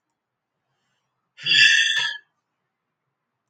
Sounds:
Sigh